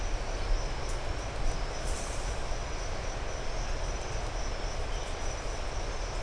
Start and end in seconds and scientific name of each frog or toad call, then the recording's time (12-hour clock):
none
5:45pm